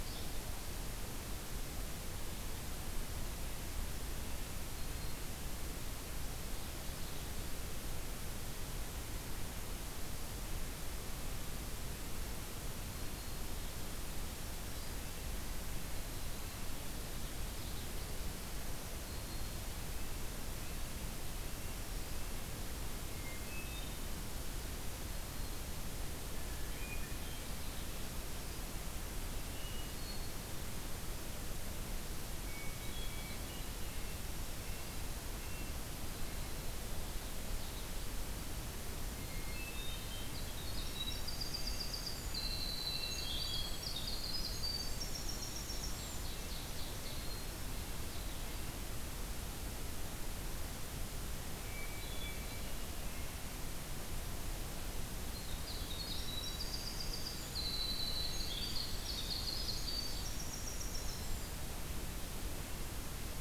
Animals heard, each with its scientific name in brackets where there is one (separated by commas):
Common Yellowthroat (Geothlypis trichas), Ovenbird (Seiurus aurocapilla), Black-throated Green Warbler (Setophaga virens), Hermit Thrush (Catharus guttatus), Winter Wren (Troglodytes hiemalis), Red-breasted Nuthatch (Sitta canadensis), Yellow-bellied Flycatcher (Empidonax flaviventris)